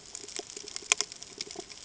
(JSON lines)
{"label": "ambient", "recorder": "HydroMoth"}